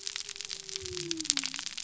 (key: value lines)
label: biophony
recorder: SoundTrap 300